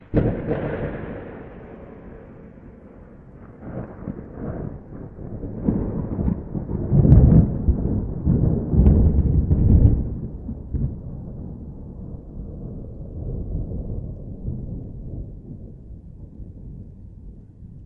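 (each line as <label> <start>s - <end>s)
Thunder rumbles in the distance. 0.0s - 2.1s
Thunder rumbles quietly in the distance. 3.6s - 6.9s
Thunder rumbles nearby. 6.9s - 10.2s
Thunder echoes quietly in the distance. 10.1s - 15.9s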